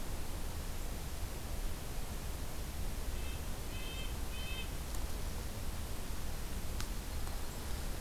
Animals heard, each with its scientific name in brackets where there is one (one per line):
Red-breasted Nuthatch (Sitta canadensis)